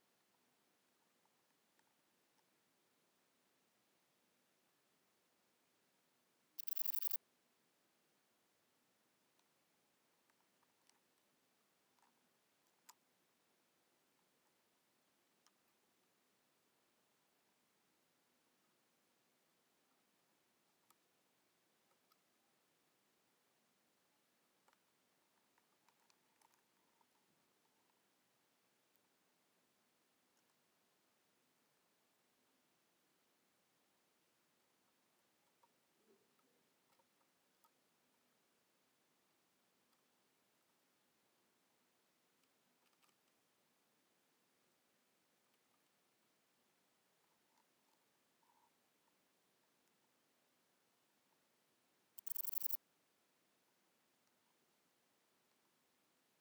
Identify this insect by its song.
Antaxius chopardi, an orthopteran